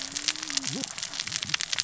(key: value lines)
label: biophony, cascading saw
recorder: SoundTrap 600 or HydroMoth